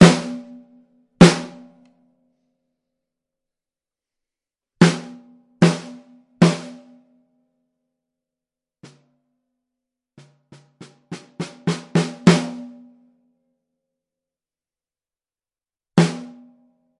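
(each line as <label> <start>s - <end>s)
A drum is being hit rhythmically indoors. 0.0s - 2.6s
A drum is being hit rhythmically indoors. 4.8s - 7.7s
A drum is softly hit nearby indoors. 8.8s - 9.4s
A drum is hit rhythmically indoors, starting softly and progressively getting louder. 10.1s - 13.6s
A drum is being played indoors. 15.9s - 17.0s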